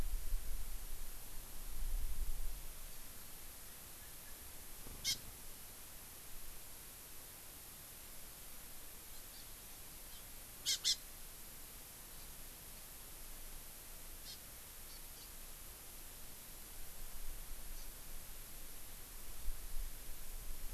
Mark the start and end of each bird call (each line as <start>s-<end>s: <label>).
5.0s-5.1s: Hawaii Amakihi (Chlorodrepanis virens)
9.3s-9.4s: Hawaii Amakihi (Chlorodrepanis virens)
10.6s-10.9s: Hawaii Amakihi (Chlorodrepanis virens)
14.2s-14.3s: Hawaii Amakihi (Chlorodrepanis virens)
14.8s-15.2s: Hawaii Amakihi (Chlorodrepanis virens)
17.7s-17.8s: Hawaii Amakihi (Chlorodrepanis virens)